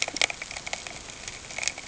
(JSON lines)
{"label": "ambient", "recorder": "HydroMoth"}